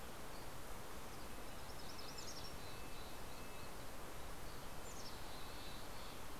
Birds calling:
Red-breasted Nuthatch (Sitta canadensis)
Mountain Chickadee (Poecile gambeli)
MacGillivray's Warbler (Geothlypis tolmiei)

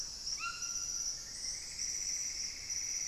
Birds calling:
White-throated Toucan (Ramphastos tucanus)
Plumbeous Antbird (Myrmelastes hyperythrus)

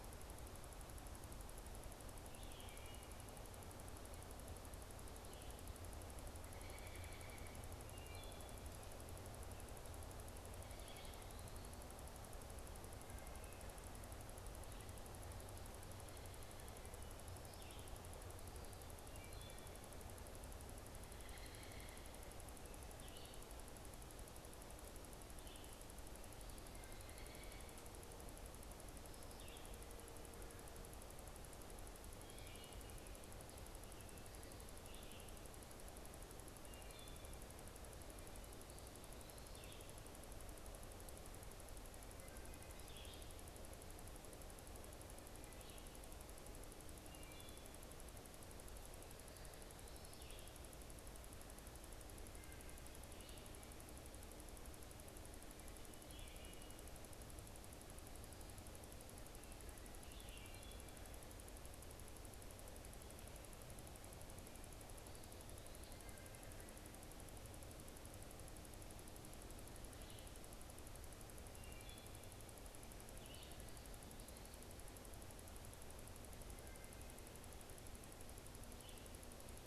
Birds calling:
Red-eyed Vireo (Vireo olivaceus)
Wood Thrush (Hylocichla mustelina)
American Robin (Turdus migratorius)

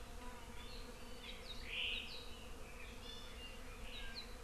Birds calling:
Iiwi (Drepanis coccinea)

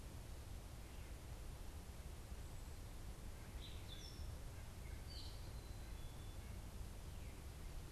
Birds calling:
Black-capped Chickadee (Poecile atricapillus)
Gray Catbird (Dumetella carolinensis)

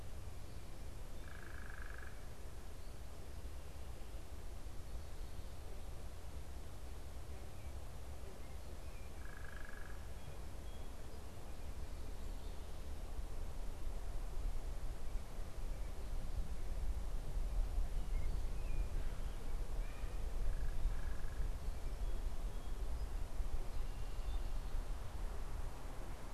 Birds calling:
American Robin (Turdus migratorius)
unidentified bird

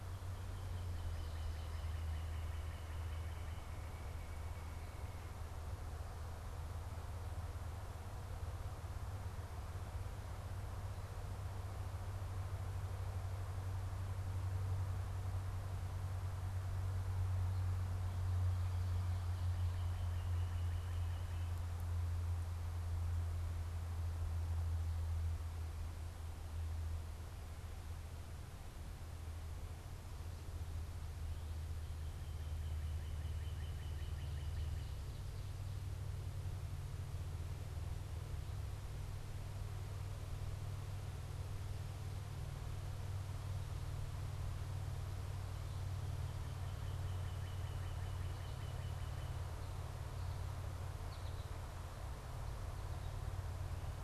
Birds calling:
unidentified bird
Northern Cardinal (Cardinalis cardinalis)
American Goldfinch (Spinus tristis)

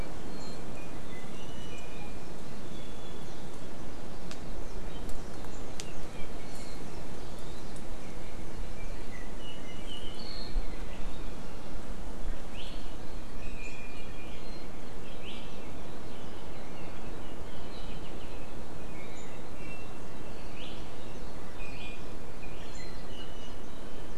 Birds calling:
Iiwi (Drepanis coccinea)

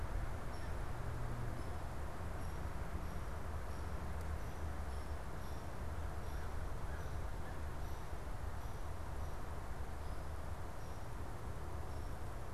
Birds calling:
Hairy Woodpecker (Dryobates villosus)

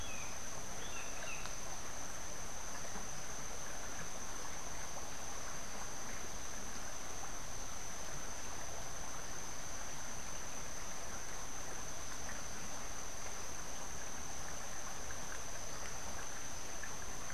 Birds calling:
Brown Jay (Psilorhinus morio)

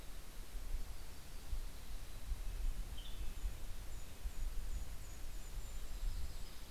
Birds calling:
Golden-crowned Kinglet (Regulus satrapa)
Western Tanager (Piranga ludoviciana)
Red-breasted Nuthatch (Sitta canadensis)
Yellow-rumped Warbler (Setophaga coronata)

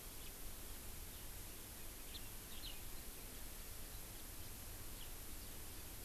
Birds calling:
House Finch (Haemorhous mexicanus)

